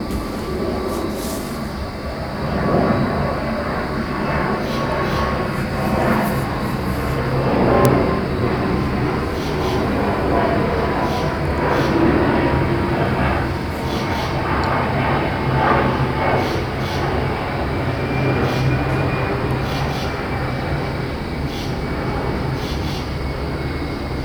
is it outside?
yes